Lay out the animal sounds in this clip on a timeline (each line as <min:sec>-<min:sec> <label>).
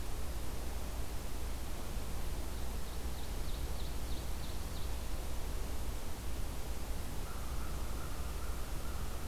0:02.0-0:04.9 Ovenbird (Seiurus aurocapilla)
0:07.2-0:09.1 American Crow (Corvus brachyrhynchos)